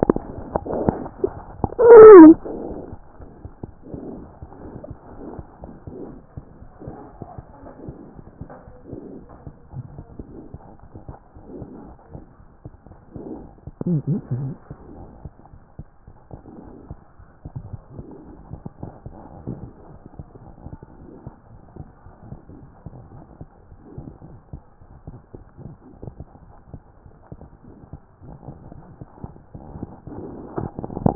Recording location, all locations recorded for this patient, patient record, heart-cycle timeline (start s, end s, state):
aortic valve (AV)
aortic valve (AV)+mitral valve (MV)
#Age: Infant
#Sex: Male
#Height: 65.0 cm
#Weight: 8.0 kg
#Pregnancy status: False
#Murmur: Absent
#Murmur locations: nan
#Most audible location: nan
#Systolic murmur timing: nan
#Systolic murmur shape: nan
#Systolic murmur grading: nan
#Systolic murmur pitch: nan
#Systolic murmur quality: nan
#Diastolic murmur timing: nan
#Diastolic murmur shape: nan
#Diastolic murmur grading: nan
#Diastolic murmur pitch: nan
#Diastolic murmur quality: nan
#Outcome: Normal
#Campaign: 2014 screening campaign
0.00	7.79	unannotated
7.79	7.84	diastole
7.84	7.96	S1
7.96	8.14	systole
8.14	8.24	S2
8.24	8.42	diastole
8.42	8.50	S1
8.50	8.66	systole
8.66	8.74	S2
8.74	8.90	diastole
8.90	9.02	S1
9.02	9.14	systole
9.14	9.24	S2
9.24	9.46	diastole
9.46	9.53	S1
9.53	9.74	systole
9.74	9.84	S2
9.84	9.99	diastole
9.99	10.08	S1
10.08	10.20	systole
10.20	10.28	S2
10.28	10.53	diastole
10.53	10.64	S1
10.64	10.96	systole
10.96	11.18	S2
11.18	11.54	diastole
11.54	11.68	S1
11.68	11.84	systole
11.84	11.94	S2
11.94	12.12	diastole
12.12	12.22	S1
12.22	12.38	systole
12.38	12.48	S2
12.48	12.66	diastole
12.66	12.68	S1
12.68	31.15	unannotated